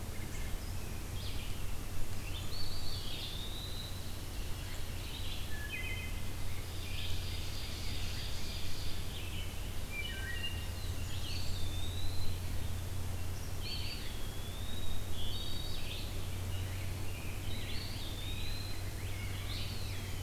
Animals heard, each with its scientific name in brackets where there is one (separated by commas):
Ovenbird (Seiurus aurocapilla), Red-eyed Vireo (Vireo olivaceus), Black-throated Blue Warbler (Setophaga caerulescens), Rose-breasted Grosbeak (Pheucticus ludovicianus), Eastern Wood-Pewee (Contopus virens), Blackburnian Warbler (Setophaga fusca), Wood Thrush (Hylocichla mustelina)